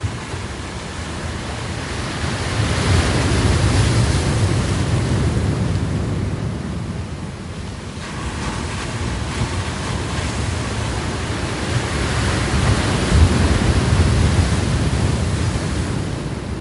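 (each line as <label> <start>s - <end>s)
The loud sound of water waxing and waning with wind howling in the background. 0.0s - 16.6s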